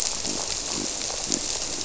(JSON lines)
{"label": "biophony", "recorder": "SoundTrap 300"}